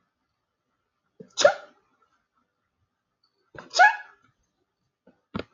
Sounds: Sneeze